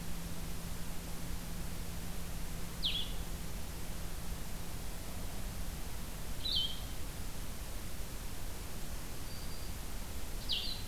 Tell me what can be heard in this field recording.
Blue-headed Vireo, Black-throated Green Warbler